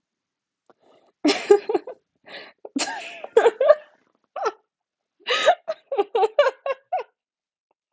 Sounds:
Laughter